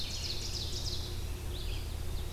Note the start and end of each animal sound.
[0.00, 1.06] Ovenbird (Seiurus aurocapilla)
[0.00, 2.33] Red-eyed Vireo (Vireo olivaceus)

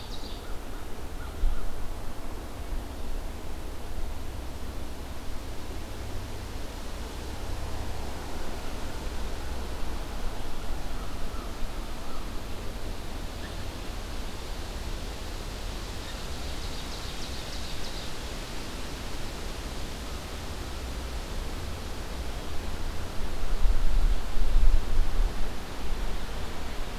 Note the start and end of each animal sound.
[0.00, 1.96] American Crow (Corvus brachyrhynchos)
[11.08, 12.30] American Crow (Corvus brachyrhynchos)
[15.49, 18.38] Ovenbird (Seiurus aurocapilla)

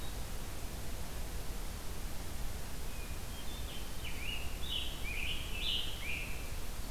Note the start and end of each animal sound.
[2.79, 3.85] Hermit Thrush (Catharus guttatus)
[3.61, 6.90] Scarlet Tanager (Piranga olivacea)

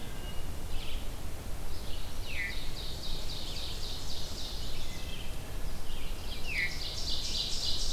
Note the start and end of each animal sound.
[0.00, 7.92] Red-eyed Vireo (Vireo olivaceus)
[2.09, 5.09] Ovenbird (Seiurus aurocapilla)
[2.15, 2.62] Veery (Catharus fuscescens)
[6.17, 7.92] Ovenbird (Seiurus aurocapilla)
[6.25, 6.80] Veery (Catharus fuscescens)

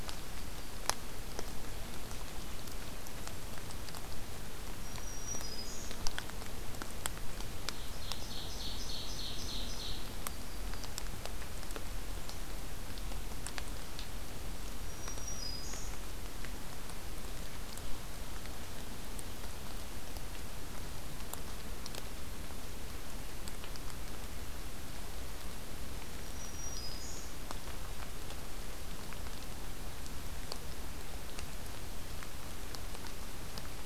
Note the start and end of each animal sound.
[4.79, 5.97] Black-throated Green Warbler (Setophaga virens)
[7.78, 10.09] Ovenbird (Seiurus aurocapilla)
[10.01, 10.98] Yellow-rumped Warbler (Setophaga coronata)
[14.76, 16.03] Black-throated Green Warbler (Setophaga virens)
[26.17, 27.32] Black-throated Green Warbler (Setophaga virens)

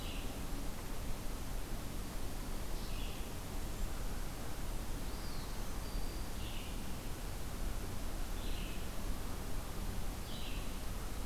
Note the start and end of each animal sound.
[0.00, 11.26] Red-eyed Vireo (Vireo olivaceus)
[4.90, 5.69] Eastern Wood-Pewee (Contopus virens)
[5.54, 6.40] Black-throated Green Warbler (Setophaga virens)

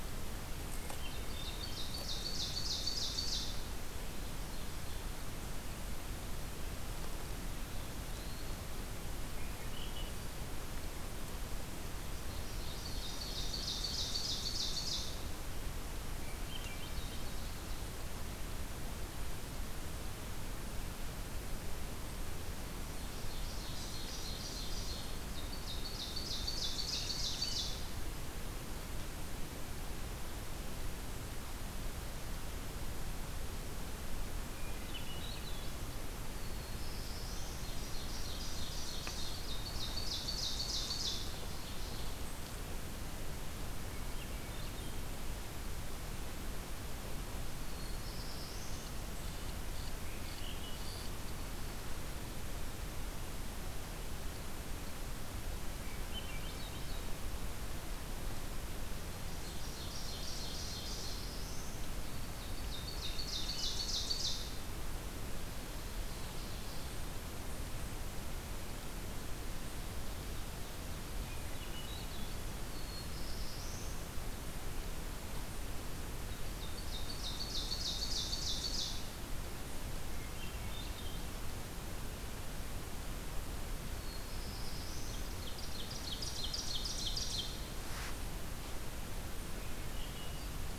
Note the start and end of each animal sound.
[0.95, 5.08] Ovenbird (Seiurus aurocapilla)
[7.23, 8.71] Eastern Wood-Pewee (Contopus virens)
[9.17, 10.29] Swainson's Thrush (Catharus ustulatus)
[12.26, 15.18] Ovenbird (Seiurus aurocapilla)
[16.38, 17.45] Swainson's Thrush (Catharus ustulatus)
[22.89, 27.84] Ovenbird (Seiurus aurocapilla)
[34.51, 35.87] Swainson's Thrush (Catharus ustulatus)
[36.32, 37.58] Black-throated Blue Warbler (Setophaga caerulescens)
[37.55, 42.10] Ovenbird (Seiurus aurocapilla)
[43.83, 45.15] Swainson's Thrush (Catharus ustulatus)
[47.51, 48.97] Black-throated Blue Warbler (Setophaga caerulescens)
[49.08, 51.06] unidentified call
[50.36, 51.15] Swainson's Thrush (Catharus ustulatus)
[55.94, 57.06] Swainson's Thrush (Catharus ustulatus)
[59.29, 61.22] Ovenbird (Seiurus aurocapilla)
[60.79, 61.72] Black-throated Blue Warbler (Setophaga caerulescens)
[62.51, 64.48] Ovenbird (Seiurus aurocapilla)
[71.49, 72.61] Swainson's Thrush (Catharus ustulatus)
[72.68, 74.03] Black-throated Blue Warbler (Setophaga caerulescens)
[76.43, 79.05] Ovenbird (Seiurus aurocapilla)
[80.21, 81.35] Swainson's Thrush (Catharus ustulatus)
[84.00, 85.23] Black-throated Blue Warbler (Setophaga caerulescens)
[85.30, 87.64] Ovenbird (Seiurus aurocapilla)
[89.38, 90.78] Swainson's Thrush (Catharus ustulatus)

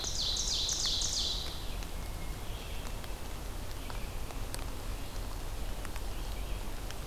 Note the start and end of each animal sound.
[0.00, 1.69] Ovenbird (Seiurus aurocapilla)
[0.00, 7.07] Red-eyed Vireo (Vireo olivaceus)
[1.79, 3.20] Hermit Thrush (Catharus guttatus)

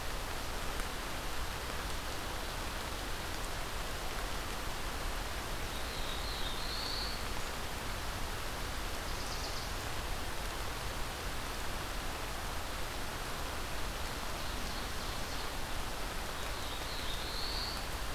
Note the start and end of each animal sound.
[5.54, 7.56] Black-throated Blue Warbler (Setophaga caerulescens)
[8.96, 9.76] unidentified call
[14.05, 15.63] Ovenbird (Seiurus aurocapilla)
[16.24, 18.15] Black-throated Blue Warbler (Setophaga caerulescens)

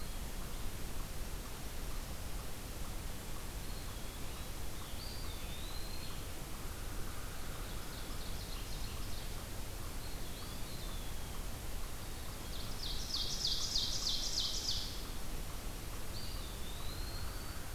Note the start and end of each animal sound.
[3.53, 6.40] Eastern Wood-Pewee (Contopus virens)
[4.57, 6.32] Scarlet Tanager (Piranga olivacea)
[6.26, 7.76] American Crow (Corvus brachyrhynchos)
[7.23, 9.49] Ovenbird (Seiurus aurocapilla)
[9.65, 11.86] Eastern Wood-Pewee (Contopus virens)
[12.17, 15.36] Ovenbird (Seiurus aurocapilla)
[15.85, 17.74] Eastern Wood-Pewee (Contopus virens)

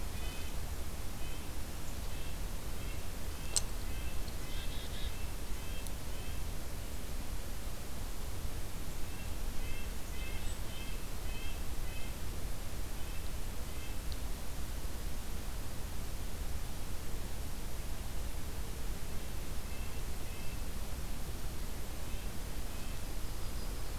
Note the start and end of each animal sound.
[0.00, 6.53] Red-breasted Nuthatch (Sitta canadensis)
[4.41, 5.30] Black-capped Chickadee (Poecile atricapillus)
[8.78, 14.06] Red-breasted Nuthatch (Sitta canadensis)
[19.36, 23.03] Red-breasted Nuthatch (Sitta canadensis)
[22.65, 23.98] Yellow-rumped Warbler (Setophaga coronata)

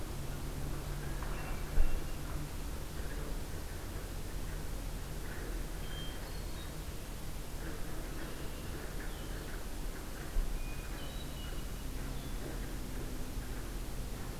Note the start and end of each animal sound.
[1.00, 2.32] Hermit Thrush (Catharus guttatus)
[5.77, 6.74] Hermit Thrush (Catharus guttatus)
[7.95, 8.83] Red-winged Blackbird (Agelaius phoeniceus)
[10.59, 11.70] Hermit Thrush (Catharus guttatus)

